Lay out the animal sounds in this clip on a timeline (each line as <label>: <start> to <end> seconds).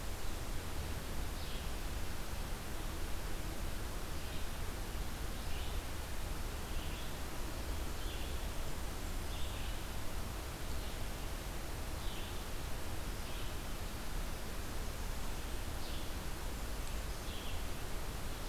Red-eyed Vireo (Vireo olivaceus): 1.3 to 18.5 seconds